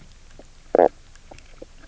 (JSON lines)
{"label": "biophony, knock croak", "recorder": "SoundTrap 300"}